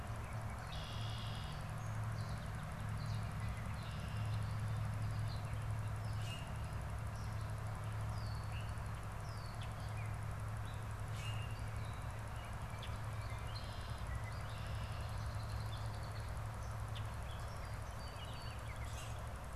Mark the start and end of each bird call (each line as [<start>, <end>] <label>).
[0.43, 1.83] Red-winged Blackbird (Agelaius phoeniceus)
[3.43, 4.63] Red-winged Blackbird (Agelaius phoeniceus)
[5.93, 6.53] Common Grackle (Quiscalus quiscula)
[7.93, 9.83] Red-winged Blackbird (Agelaius phoeniceus)
[11.03, 11.73] Common Grackle (Quiscalus quiscula)
[13.03, 16.43] Red-winged Blackbird (Agelaius phoeniceus)
[17.73, 19.03] Baltimore Oriole (Icterus galbula)
[18.63, 19.33] Common Grackle (Quiscalus quiscula)